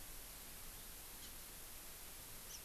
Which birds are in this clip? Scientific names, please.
Haemorhous mexicanus